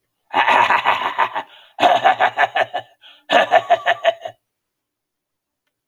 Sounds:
Throat clearing